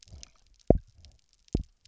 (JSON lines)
{"label": "biophony, double pulse", "recorder": "SoundTrap 300"}